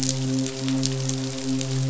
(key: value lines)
label: biophony, midshipman
recorder: SoundTrap 500